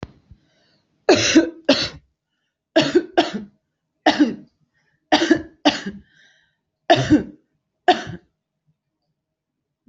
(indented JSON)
{
  "expert_labels": [
    {
      "quality": "good",
      "cough_type": "dry",
      "dyspnea": false,
      "wheezing": false,
      "stridor": false,
      "choking": false,
      "congestion": false,
      "nothing": true,
      "diagnosis": "upper respiratory tract infection",
      "severity": "mild"
    }
  ],
  "age": 29,
  "gender": "female",
  "respiratory_condition": true,
  "fever_muscle_pain": false,
  "status": "symptomatic"
}